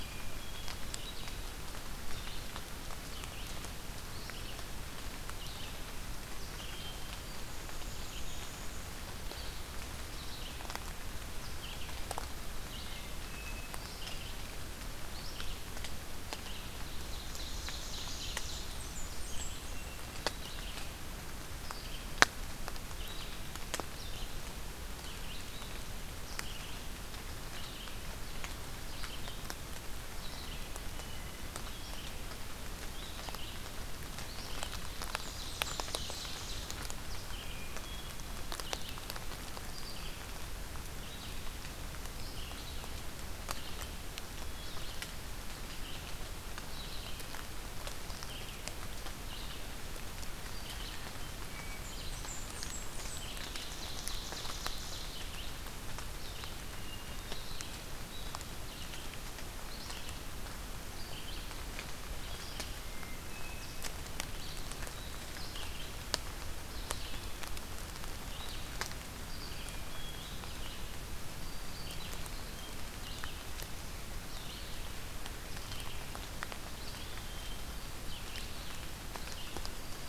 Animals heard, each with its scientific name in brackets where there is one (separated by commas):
Hermit Thrush (Catharus guttatus), Ovenbird (Seiurus aurocapilla), Blackburnian Warbler (Setophaga fusca), Northern Parula (Setophaga americana), Red-eyed Vireo (Vireo olivaceus), Black-throated Green Warbler (Setophaga virens)